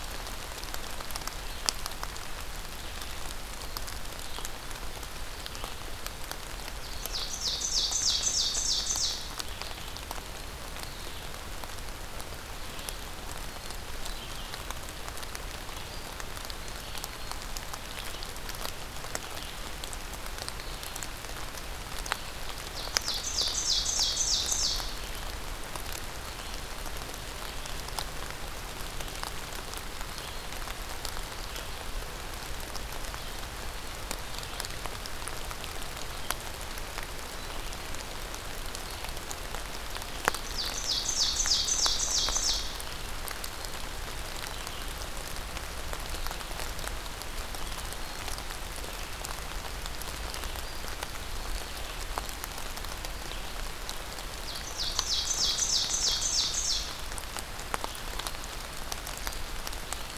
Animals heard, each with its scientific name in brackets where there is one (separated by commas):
Black-throated Green Warbler (Setophaga virens), Ovenbird (Seiurus aurocapilla), Red-eyed Vireo (Vireo olivaceus), Black-capped Chickadee (Poecile atricapillus), Eastern Wood-Pewee (Contopus virens)